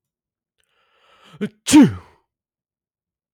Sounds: Sneeze